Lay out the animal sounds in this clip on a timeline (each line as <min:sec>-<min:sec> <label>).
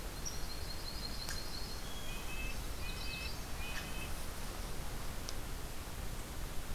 0:00.0-0:01.8 Yellow-rumped Warbler (Setophaga coronata)
0:01.8-0:04.1 Red-breasted Nuthatch (Sitta canadensis)
0:02.6-0:03.5 Magnolia Warbler (Setophaga magnolia)